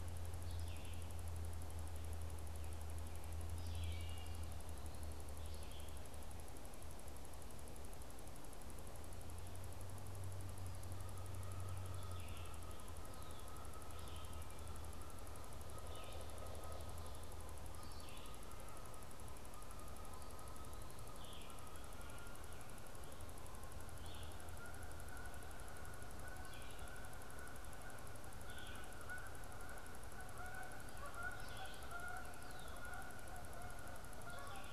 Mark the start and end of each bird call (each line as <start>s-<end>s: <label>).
0.4s-1.1s: Red-eyed Vireo (Vireo olivaceus)
3.5s-4.5s: Wood Thrush (Hylocichla mustelina)
11.2s-20.1s: Canada Goose (Branta canadensis)
11.7s-18.7s: Red-eyed Vireo (Vireo olivaceus)
15.5s-16.9s: Pileated Woodpecker (Dryocopus pileatus)
21.1s-34.7s: Red-eyed Vireo (Vireo olivaceus)
30.1s-34.7s: Canada Goose (Branta canadensis)
32.3s-33.0s: Red-winged Blackbird (Agelaius phoeniceus)